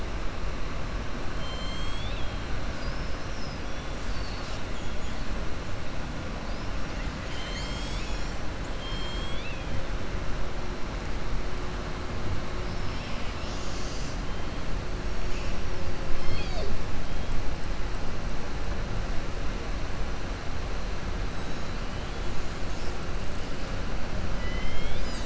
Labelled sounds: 1.3	2.4	killer whale, southern resident, 2.2 to 4.6 kHz
8.7	9.7	killer whale, southern resident, 2.2 to 5.3 kHz

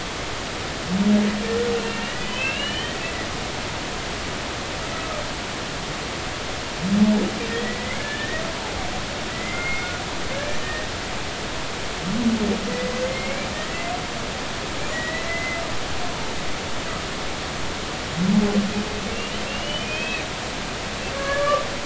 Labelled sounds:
1.7	3.0	humpback whale, 1.5 to 4.4 kHz
3.3	3.9	humpback whale, 2.5 to 3.2 kHz
7.5	8.4	humpback whale, 1.6 to 2.3 kHz
9.3	10.9	humpback whale, 1.4 to 2.2 kHz
13.0	13.9	humpback whale, 1.8 to 2.4 kHz
14.9	15.6	humpback whale, 1.9 to 4.1 kHz
19.1	20.2	humpback whale, 2.4 to 3.3 kHz
21.2	21.7	humpback whale, 1.1 to 1.9 kHz

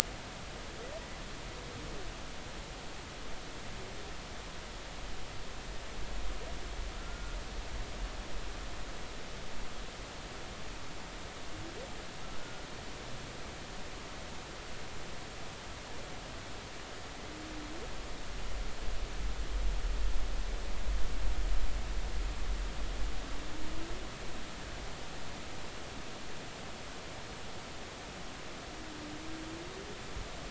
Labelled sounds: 7.0	7.4	humpback whale, 1.3 to 1.6 kHz

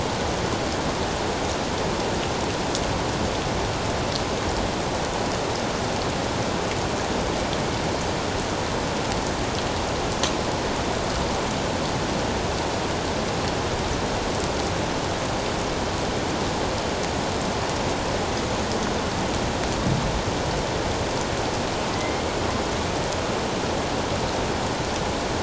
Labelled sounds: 21.9	22.3	killer whale, northern resident, A clan, AA subclan, 1.9 to 2.2 kHz

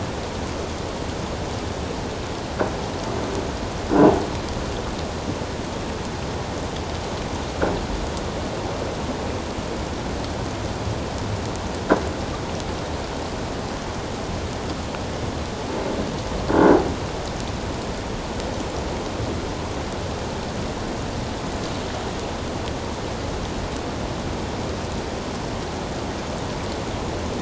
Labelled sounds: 16.5	16.8	croaking sound likely from a nearby submerged object, 1.4 to 1.7 kHz

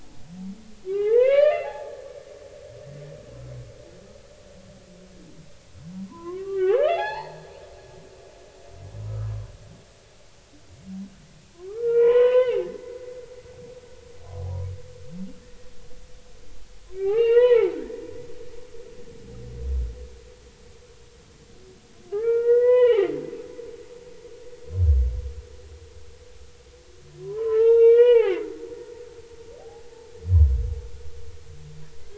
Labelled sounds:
0.9	1.9	humpback whale, 0.80 to 4.3 kHz
5.9	7.5	humpback whale, 0.80 to 5.2 kHz
10.1	10.3	humpback whale, 1.2 to 1.4 kHz
11.5	12.6	humpback whale, 0.80 to 4.1 kHz
17.0	18.0	humpback whale, 0.80 to 4.3 kHz
22.1	23.2	humpback whale, 0.80 to 3.6 kHz
27.2	28.5	humpback whale, 0.80 to 3.8 kHz
29.6	29.8	humpback whale, 0.80 to 0.90 kHz

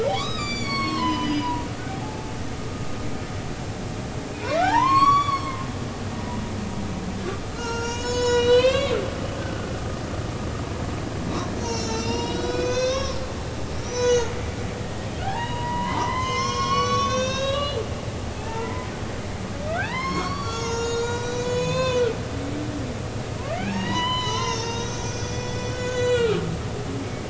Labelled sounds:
0.0	2.3	humpback whale, 0.80 to 7.2 kHz
4.3	5.5	humpback whale, 0.80 to 8.0 kHz
7.5	9.0	humpback whale, 0.86 to 6.9 kHz
11.6	14.3	humpback whale, 0.90 to 7.0 kHz
15.2	17.8	humpback whale, 0.80 to 6.9 kHz
18.4	18.9	humpback whale, 0.80 to 2.1 kHz
19.7	22.9	humpback whale, 0.80 to 7.3 kHz
23.5	27.2	humpback whale, 0.80 to 7.2 kHz

